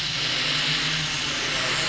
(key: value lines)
label: anthrophony, boat engine
recorder: SoundTrap 500